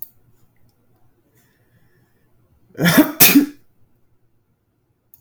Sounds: Sneeze